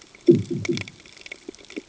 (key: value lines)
label: anthrophony, bomb
recorder: HydroMoth